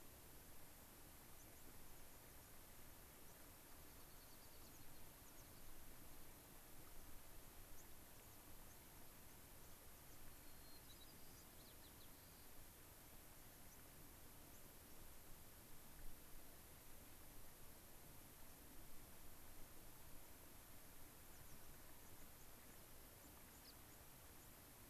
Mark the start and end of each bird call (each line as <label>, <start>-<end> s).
American Pipit (Anthus rubescens), 1.3-2.0 s
American Pipit (Anthus rubescens), 3.7-5.6 s
American Pipit (Anthus rubescens), 8.1-8.4 s
American Pipit (Anthus rubescens), 8.7-8.8 s
American Pipit (Anthus rubescens), 9.2-9.3 s
American Pipit (Anthus rubescens), 9.9-10.2 s
White-crowned Sparrow (Zonotrichia leucophrys), 10.4-12.5 s
White-crowned Sparrow (Zonotrichia leucophrys), 13.7-13.8 s
White-crowned Sparrow (Zonotrichia leucophrys), 14.5-14.6 s
White-crowned Sparrow (Zonotrichia leucophrys), 21.3-21.7 s
White-crowned Sparrow (Zonotrichia leucophrys), 22.0-22.8 s
White-crowned Sparrow (Zonotrichia leucophrys), 23.2-24.0 s
White-crowned Sparrow (Zonotrichia leucophrys), 24.4-24.5 s